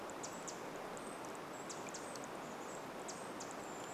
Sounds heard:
Brown Creeper call
Pacific Wren call
Chestnut-backed Chickadee call

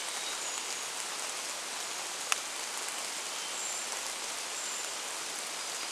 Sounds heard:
rain
Hermit Thrush song
Brown Creeper call

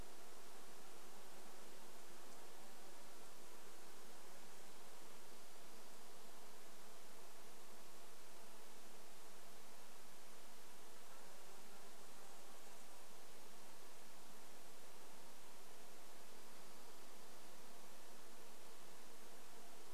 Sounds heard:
Dark-eyed Junco song
insect buzz

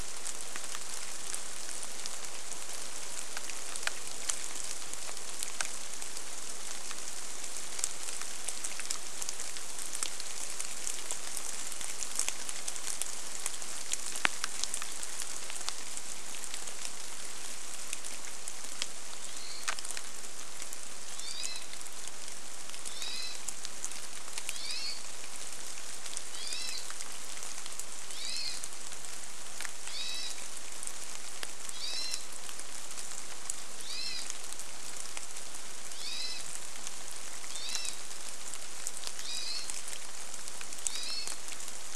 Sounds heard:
rain
Hermit Thrush call

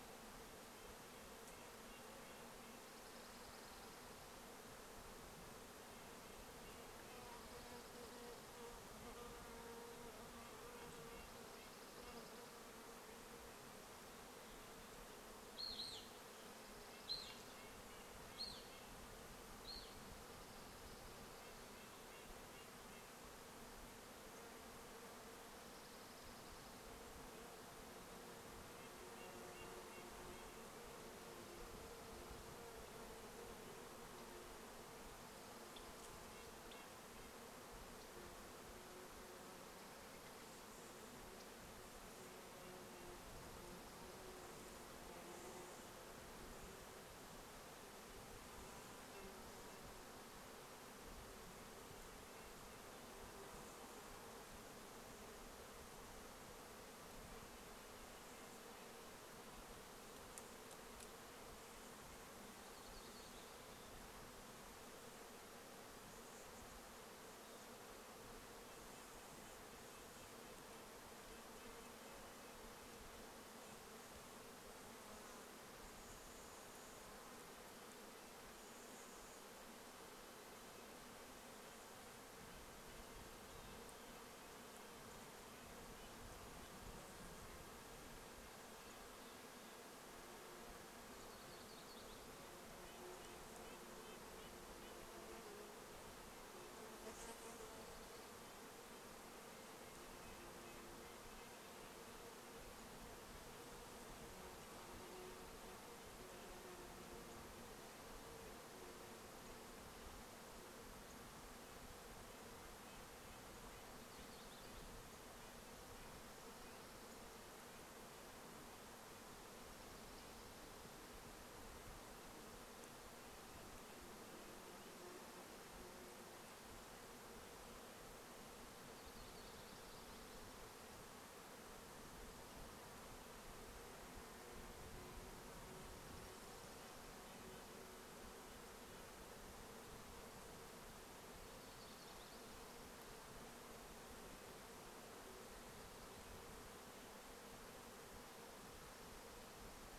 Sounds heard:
Red-breasted Nuthatch song
insect buzz
Dark-eyed Junco song
Evening Grosbeak call
warbler song
American Robin call

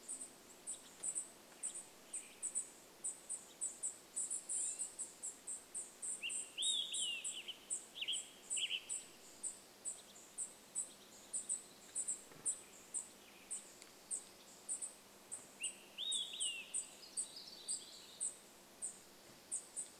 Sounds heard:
American Goldfinch call
Dark-eyed Junco call
Olive-sided Flycatcher song
unidentified sound
bird wingbeats
warbler song
Western Tanager song

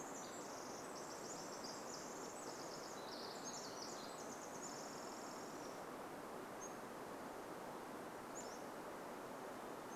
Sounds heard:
Pacific Wren song
Pacific-slope Flycatcher song

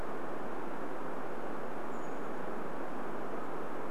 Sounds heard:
Brown Creeper call

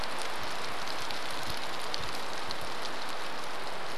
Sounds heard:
rain

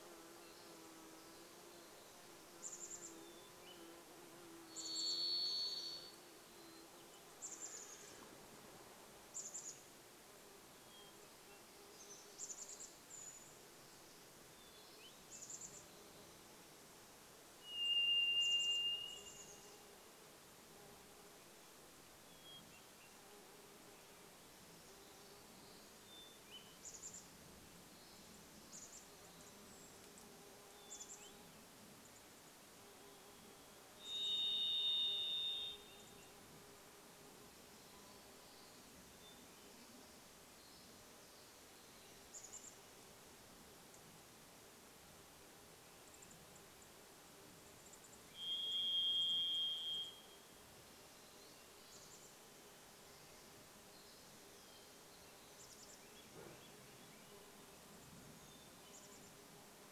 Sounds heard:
unidentified bird chip note
Brown Creeper call
Varied Thrush song
dog bark
Pacific Wren song
insect buzz
Hermit Thrush song
Chestnut-backed Chickadee call
Swainson's Thrush song

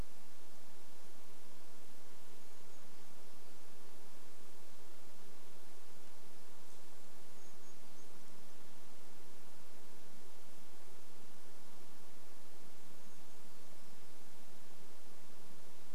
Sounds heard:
Brown Creeper call

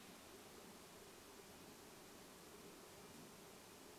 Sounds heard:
Red-breasted Nuthatch song

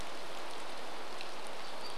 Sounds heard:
rain

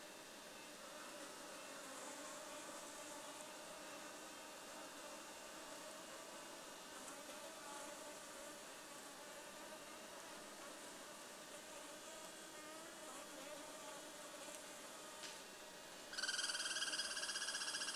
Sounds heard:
insect buzz
Douglas squirrel rattle
Red-breasted Nuthatch song

